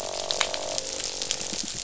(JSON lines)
{"label": "biophony", "recorder": "SoundTrap 500"}
{"label": "biophony, croak", "recorder": "SoundTrap 500"}